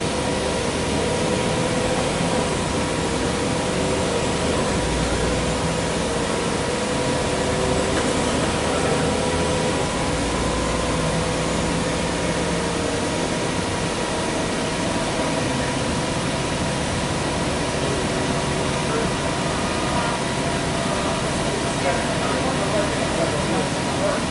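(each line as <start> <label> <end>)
0.0 White noise. 24.3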